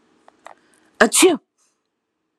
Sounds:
Sneeze